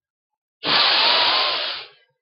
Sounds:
Sigh